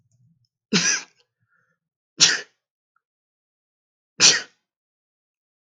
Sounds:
Sneeze